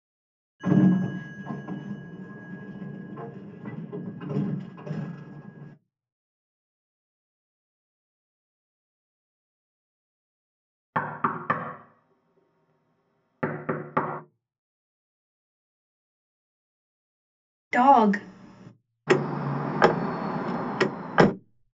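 At 0.6 seconds, the sound of a sliding door comes through. Then, at 10.9 seconds, knocking is audible. After that, at 17.7 seconds, a voice says "dog." Next, at 19.1 seconds, you can hear a car.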